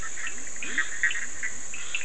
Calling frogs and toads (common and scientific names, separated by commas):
Bischoff's tree frog (Boana bischoffi), Leptodactylus latrans, Cochran's lime tree frog (Sphaenorhynchus surdus)